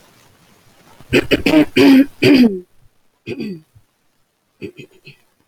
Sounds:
Throat clearing